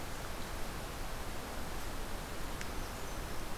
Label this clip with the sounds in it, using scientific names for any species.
Setophaga fusca